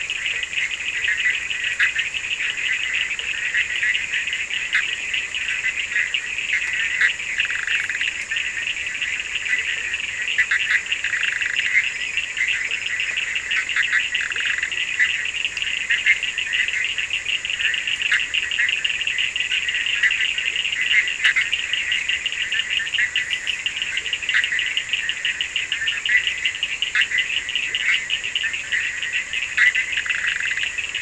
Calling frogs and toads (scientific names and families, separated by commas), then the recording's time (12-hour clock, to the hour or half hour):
Boana bischoffi (Hylidae), Sphaenorhynchus surdus (Hylidae)
4:30am